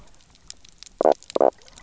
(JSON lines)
{"label": "biophony, knock croak", "recorder": "SoundTrap 300"}